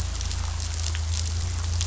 {"label": "anthrophony, boat engine", "recorder": "SoundTrap 500"}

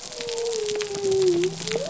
{"label": "biophony", "recorder": "SoundTrap 300"}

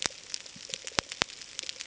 {"label": "ambient", "recorder": "HydroMoth"}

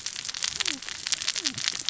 {"label": "biophony, cascading saw", "recorder": "SoundTrap 600 or HydroMoth"}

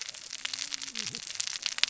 {"label": "biophony, cascading saw", "recorder": "SoundTrap 600 or HydroMoth"}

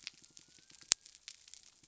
{"label": "biophony", "recorder": "SoundTrap 300"}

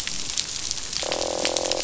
{"label": "biophony, croak", "recorder": "SoundTrap 500"}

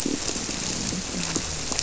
{"label": "biophony", "recorder": "SoundTrap 300"}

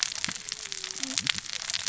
{"label": "biophony, cascading saw", "recorder": "SoundTrap 600 or HydroMoth"}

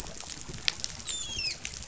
{"label": "biophony, dolphin", "recorder": "SoundTrap 500"}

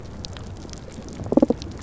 {"label": "biophony, damselfish", "recorder": "SoundTrap 300"}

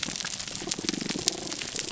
{"label": "biophony, damselfish", "recorder": "SoundTrap 300"}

